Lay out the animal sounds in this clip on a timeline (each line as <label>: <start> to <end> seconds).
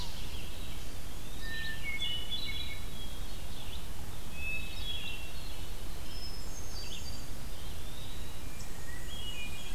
Red-eyed Vireo (Vireo olivaceus): 0.0 to 9.7 seconds
Eastern Wood-Pewee (Contopus virens): 1.0 to 1.7 seconds
Hermit Thrush (Catharus guttatus): 1.3 to 3.5 seconds
Eastern Wood-Pewee (Contopus virens): 4.0 to 5.0 seconds
Hermit Thrush (Catharus guttatus): 4.3 to 7.4 seconds
Eastern Wood-Pewee (Contopus virens): 7.3 to 8.5 seconds
Black-and-white Warbler (Mniotilta varia): 8.4 to 9.7 seconds
Hermit Thrush (Catharus guttatus): 8.5 to 9.7 seconds